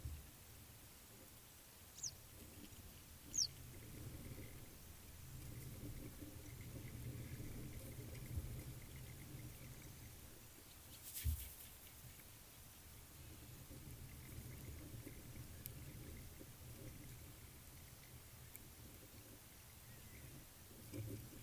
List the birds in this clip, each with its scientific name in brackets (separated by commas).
Western Yellow Wagtail (Motacilla flava)